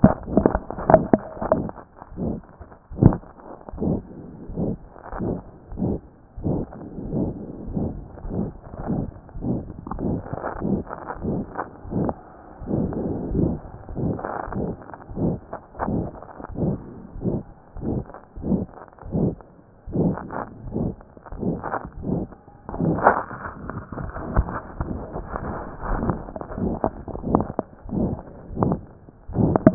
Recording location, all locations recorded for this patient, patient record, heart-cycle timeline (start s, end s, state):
aortic valve (AV)
aortic valve (AV)+pulmonary valve (PV)+tricuspid valve (TV)+mitral valve (MV)
#Age: Child
#Sex: Female
#Height: 136.0 cm
#Weight: 26.3 kg
#Pregnancy status: False
#Murmur: Present
#Murmur locations: aortic valve (AV)+mitral valve (MV)+pulmonary valve (PV)+tricuspid valve (TV)
#Most audible location: mitral valve (MV)
#Systolic murmur timing: Mid-systolic
#Systolic murmur shape: Diamond
#Systolic murmur grading: III/VI or higher
#Systolic murmur pitch: High
#Systolic murmur quality: Harsh
#Diastolic murmur timing: nan
#Diastolic murmur shape: nan
#Diastolic murmur grading: nan
#Diastolic murmur pitch: nan
#Diastolic murmur quality: nan
#Outcome: Abnormal
#Campaign: 2014 screening campaign
0.00	4.49	unannotated
4.49	4.53	S1
4.53	4.74	systole
4.74	4.78	S2
4.78	5.13	diastole
5.13	5.18	S1
5.18	5.36	systole
5.36	5.39	S2
5.39	5.72	diastole
5.72	5.77	S1
5.77	5.96	systole
5.96	5.99	S2
5.99	6.37	diastole
6.37	6.42	S1
6.42	6.61	systole
6.61	6.65	S2
6.65	7.06	diastole
7.06	7.10	S1
7.10	7.28	systole
7.28	7.32	S2
7.32	7.67	diastole
7.67	29.74	unannotated